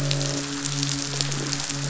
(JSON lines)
{"label": "biophony, midshipman", "recorder": "SoundTrap 500"}
{"label": "biophony, croak", "recorder": "SoundTrap 500"}